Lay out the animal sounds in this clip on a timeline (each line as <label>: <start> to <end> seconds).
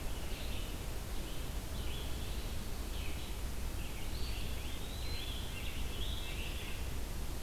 Red-breasted Nuthatch (Sitta canadensis): 0.0 to 0.5 seconds
Red-eyed Vireo (Vireo olivaceus): 0.0 to 7.4 seconds
Scarlet Tanager (Piranga olivacea): 3.7 to 7.2 seconds
Eastern Wood-Pewee (Contopus virens): 4.0 to 5.7 seconds
Red-breasted Nuthatch (Sitta canadensis): 5.3 to 7.0 seconds